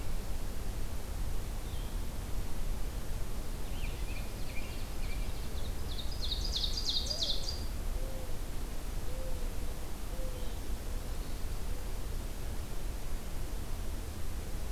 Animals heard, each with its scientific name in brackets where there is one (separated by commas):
American Robin (Turdus migratorius), Mourning Dove (Zenaida macroura), Blue-headed Vireo (Vireo solitarius), Ovenbird (Seiurus aurocapilla)